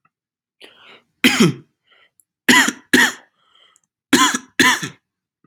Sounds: Cough